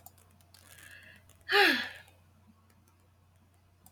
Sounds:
Sigh